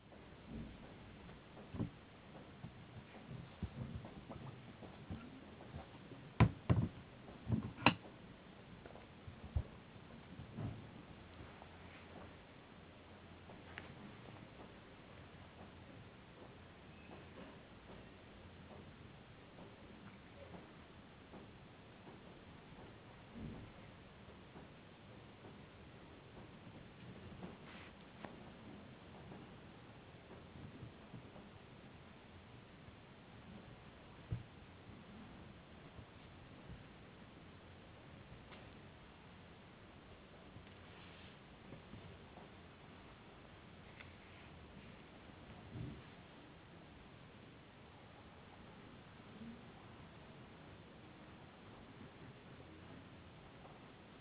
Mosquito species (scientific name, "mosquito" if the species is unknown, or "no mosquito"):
no mosquito